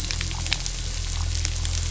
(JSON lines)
{"label": "anthrophony, boat engine", "recorder": "SoundTrap 500"}